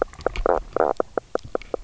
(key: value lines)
label: biophony, knock croak
recorder: SoundTrap 300